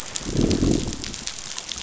{"label": "biophony, growl", "recorder": "SoundTrap 500"}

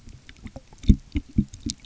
{"label": "geophony, waves", "recorder": "SoundTrap 300"}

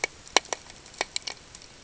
{"label": "ambient", "recorder": "HydroMoth"}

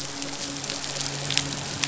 {"label": "biophony, midshipman", "recorder": "SoundTrap 500"}
{"label": "biophony", "recorder": "SoundTrap 500"}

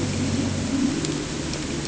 {"label": "anthrophony, boat engine", "recorder": "HydroMoth"}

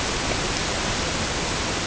{"label": "ambient", "recorder": "HydroMoth"}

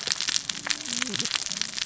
{"label": "biophony, cascading saw", "recorder": "SoundTrap 600 or HydroMoth"}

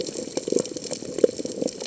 {"label": "biophony", "recorder": "HydroMoth"}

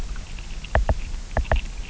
{"label": "biophony, knock", "recorder": "SoundTrap 300"}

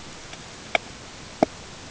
{"label": "ambient", "recorder": "HydroMoth"}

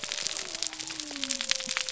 {"label": "biophony", "recorder": "SoundTrap 300"}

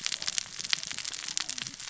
{"label": "biophony, cascading saw", "recorder": "SoundTrap 600 or HydroMoth"}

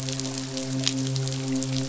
{"label": "biophony, midshipman", "recorder": "SoundTrap 500"}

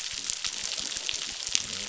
{"label": "biophony", "recorder": "SoundTrap 600"}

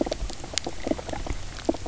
{"label": "biophony, knock croak", "recorder": "SoundTrap 300"}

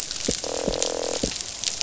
{"label": "biophony, croak", "recorder": "SoundTrap 500"}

